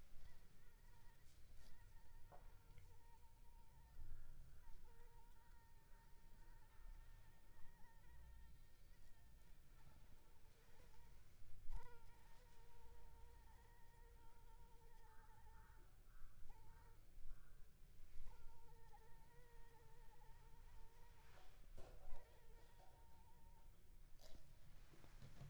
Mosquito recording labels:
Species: Anopheles arabiensis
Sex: female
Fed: unfed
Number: one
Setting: cup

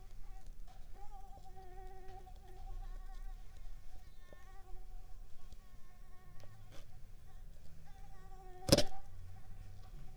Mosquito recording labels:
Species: Mansonia uniformis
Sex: female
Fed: unfed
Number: one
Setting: cup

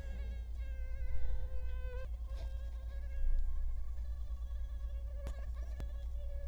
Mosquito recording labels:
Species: Culex quinquefasciatus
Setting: cup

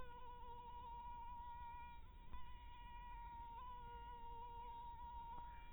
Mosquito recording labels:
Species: mosquito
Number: one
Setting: cup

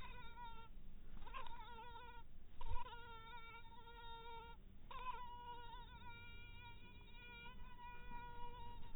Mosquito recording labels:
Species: mosquito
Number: one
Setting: cup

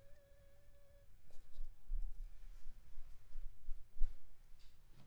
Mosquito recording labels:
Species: Anopheles funestus s.s.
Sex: female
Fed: unfed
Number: one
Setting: cup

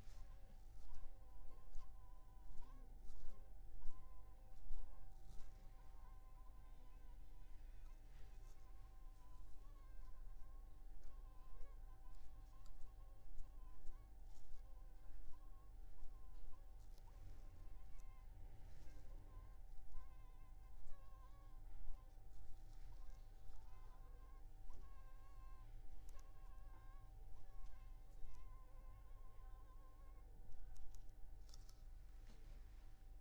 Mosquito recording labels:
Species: Anopheles funestus s.s.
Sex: female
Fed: unfed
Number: one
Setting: cup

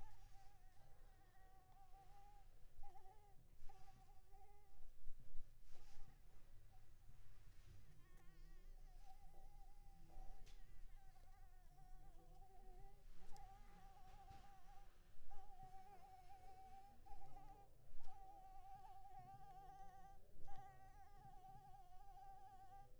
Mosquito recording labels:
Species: Anopheles maculipalpis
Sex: female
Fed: unfed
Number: one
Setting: cup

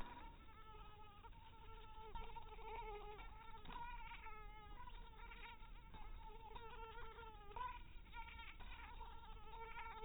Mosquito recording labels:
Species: mosquito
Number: one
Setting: cup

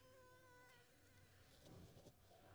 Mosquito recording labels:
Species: Anopheles squamosus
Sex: female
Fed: unfed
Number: one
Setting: cup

